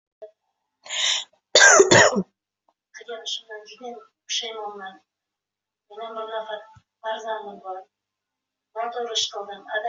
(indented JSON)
{
  "expert_labels": [
    {
      "quality": "ok",
      "cough_type": "dry",
      "dyspnea": false,
      "wheezing": false,
      "stridor": false,
      "choking": false,
      "congestion": false,
      "nothing": true,
      "diagnosis": "COVID-19",
      "severity": "mild"
    }
  ],
  "age": 19,
  "gender": "female",
  "respiratory_condition": false,
  "fever_muscle_pain": true,
  "status": "COVID-19"
}